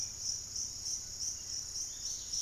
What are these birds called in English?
Dusky-capped Greenlet, Buff-throated Woodcreeper